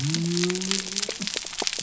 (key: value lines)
label: biophony
recorder: SoundTrap 300